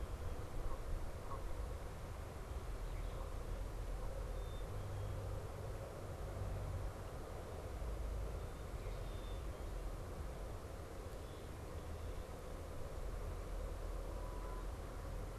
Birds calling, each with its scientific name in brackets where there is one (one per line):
Black-capped Chickadee (Poecile atricapillus)